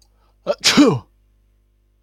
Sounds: Sneeze